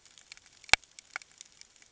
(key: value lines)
label: ambient
recorder: HydroMoth